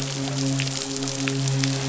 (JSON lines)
{"label": "biophony, midshipman", "recorder": "SoundTrap 500"}